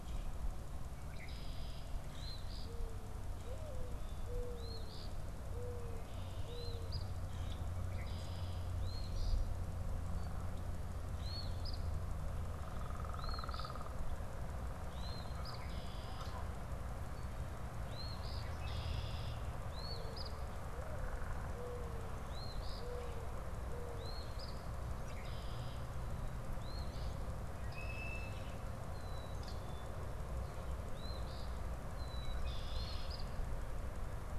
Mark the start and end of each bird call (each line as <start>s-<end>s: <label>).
0.9s-1.8s: Red-winged Blackbird (Agelaius phoeniceus)
2.0s-2.8s: Eastern Phoebe (Sayornis phoebe)
2.5s-7.0s: Mourning Dove (Zenaida macroura)
4.4s-5.2s: Eastern Phoebe (Sayornis phoebe)
6.4s-7.1s: Eastern Phoebe (Sayornis phoebe)
7.9s-8.7s: Red-winged Blackbird (Agelaius phoeniceus)
8.5s-9.5s: Eastern Phoebe (Sayornis phoebe)
11.0s-11.9s: Eastern Phoebe (Sayornis phoebe)
13.0s-14.1s: Eastern Phoebe (Sayornis phoebe)
14.8s-15.6s: Eastern Phoebe (Sayornis phoebe)
15.4s-16.4s: Red-winged Blackbird (Agelaius phoeniceus)
17.6s-18.6s: Eastern Phoebe (Sayornis phoebe)
18.5s-19.4s: Red-winged Blackbird (Agelaius phoeniceus)
19.4s-20.4s: Eastern Phoebe (Sayornis phoebe)
20.6s-24.1s: Mourning Dove (Zenaida macroura)
22.2s-23.0s: Eastern Phoebe (Sayornis phoebe)
23.8s-24.6s: Eastern Phoebe (Sayornis phoebe)
24.6s-25.9s: Red-winged Blackbird (Agelaius phoeniceus)
26.6s-27.2s: Eastern Phoebe (Sayornis phoebe)
27.6s-28.7s: Red-winged Blackbird (Agelaius phoeniceus)
28.8s-30.1s: Black-capped Chickadee (Poecile atricapillus)
31.0s-31.7s: Eastern Phoebe (Sayornis phoebe)
31.8s-32.9s: Black-capped Chickadee (Poecile atricapillus)
32.2s-33.3s: Red-winged Blackbird (Agelaius phoeniceus)
32.6s-33.3s: Eastern Phoebe (Sayornis phoebe)